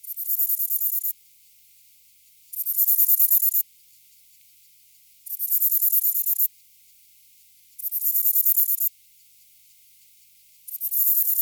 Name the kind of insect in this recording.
orthopteran